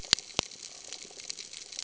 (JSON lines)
{"label": "ambient", "recorder": "HydroMoth"}